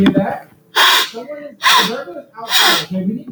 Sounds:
Sniff